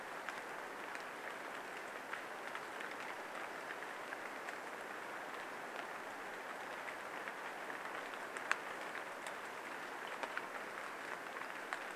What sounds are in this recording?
rain, Brown Creeper call